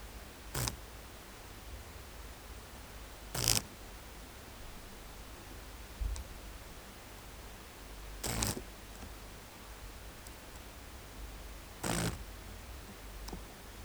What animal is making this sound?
Chorthippus bornhalmi, an orthopteran